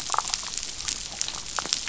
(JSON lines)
{"label": "biophony, damselfish", "recorder": "SoundTrap 500"}